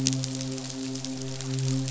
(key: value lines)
label: biophony, midshipman
recorder: SoundTrap 500